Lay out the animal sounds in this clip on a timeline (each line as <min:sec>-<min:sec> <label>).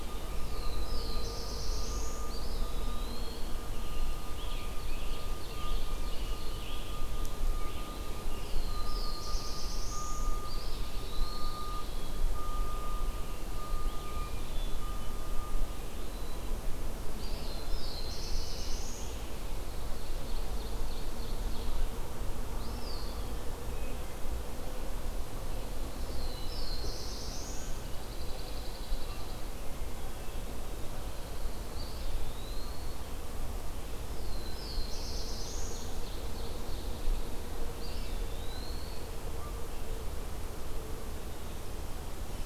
0:00.4-0:02.5 Black-throated Blue Warbler (Setophaga caerulescens)
0:02.2-0:03.7 Eastern Wood-Pewee (Contopus virens)
0:04.1-0:07.9 Scarlet Tanager (Piranga olivacea)
0:04.2-0:06.8 Ovenbird (Seiurus aurocapilla)
0:08.2-0:10.6 Black-throated Blue Warbler (Setophaga caerulescens)
0:10.4-0:12.0 Eastern Wood-Pewee (Contopus virens)
0:11.2-0:12.6 Black-capped Chickadee (Poecile atricapillus)
0:14.0-0:14.9 Hermit Thrush (Catharus guttatus)
0:14.4-0:15.2 Black-capped Chickadee (Poecile atricapillus)
0:17.0-0:19.4 Black-throated Blue Warbler (Setophaga caerulescens)
0:17.1-0:18.4 Eastern Wood-Pewee (Contopus virens)
0:19.7-0:22.1 Ovenbird (Seiurus aurocapilla)
0:22.3-0:23.7 Eastern Wood-Pewee (Contopus virens)
0:23.7-0:24.4 Hermit Thrush (Catharus guttatus)
0:25.8-0:27.8 Black-throated Blue Warbler (Setophaga caerulescens)
0:27.6-0:29.5 Pine Warbler (Setophaga pinus)
0:31.4-0:33.0 Eastern Wood-Pewee (Contopus virens)
0:34.3-0:36.0 Black-throated Blue Warbler (Setophaga caerulescens)
0:34.4-0:37.4 Ovenbird (Seiurus aurocapilla)
0:37.6-0:39.2 Eastern Wood-Pewee (Contopus virens)